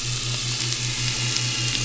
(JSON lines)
{"label": "anthrophony, boat engine", "recorder": "SoundTrap 500"}